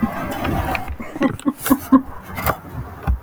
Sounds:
Laughter